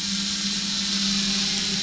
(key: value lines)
label: anthrophony, boat engine
recorder: SoundTrap 500